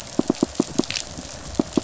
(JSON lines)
{"label": "biophony, pulse", "recorder": "SoundTrap 500"}